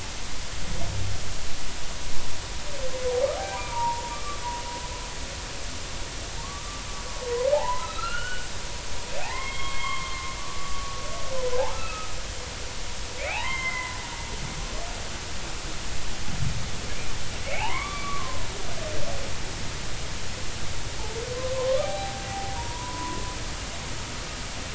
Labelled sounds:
3.5	4.4	humpback whale, 0.86 to 1.3 kHz
6.4	6.8	humpback whale, 1.0 to 1.3 kHz
7.5	8.5	humpback whale, 0.80 to 3.0 kHz
9.2	12.1	humpback whale, 0.80 to 3.4 kHz
13.2	14.0	humpback whale, 0.80 to 3.3 kHz
17.5	18.5	humpback whale, 0.80 to 3.5 kHz
21.5	23.2	humpback whale, 0.80 to 1.3 kHz

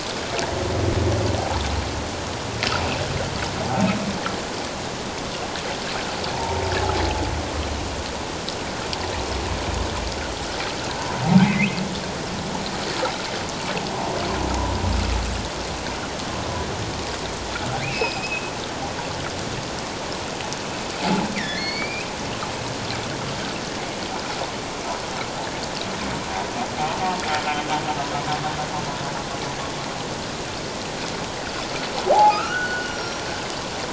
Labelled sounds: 6.3	6.6	humpback whale, 0.84 to 1.0 kHz
11.4	11.8	humpback whale, 2.0 to 2.8 kHz
17.8	18.5	humpback whale, 2.0 to 5.2 kHz
21.4	22.1	humpback whale, 1.7 to 4.9 kHz
32.1	33.3	humpback whale, 0.78 to 5.8 kHz

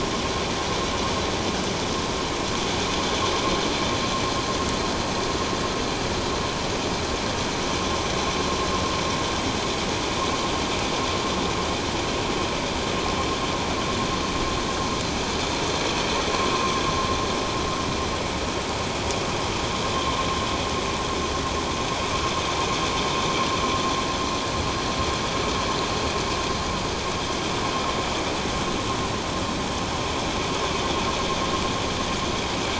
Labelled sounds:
16.5	16.8	vessel noise, 1.0 to 1.2 kHz

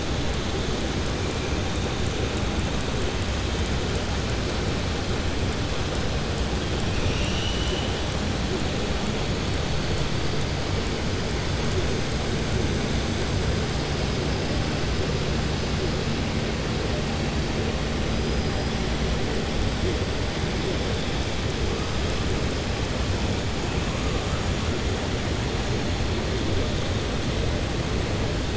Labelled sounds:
6.9	7.9	killer whale, southern resident, 2.4 to 3.9 kHz

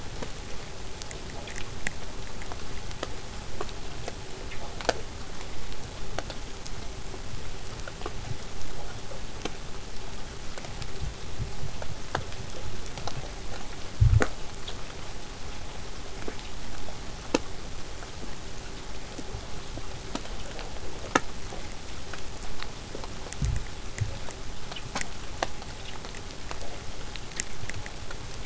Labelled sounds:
23.5	28.4	vessel noise, 0 to 8.0 kHz

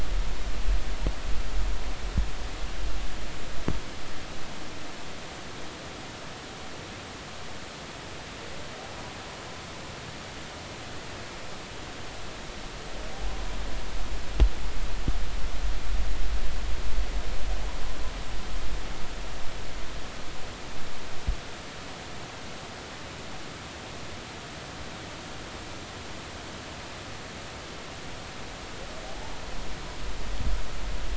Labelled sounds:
29.1	29.3	humpback whale, 0.80 to 0.93 kHz

